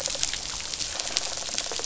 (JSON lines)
{"label": "biophony, rattle response", "recorder": "SoundTrap 500"}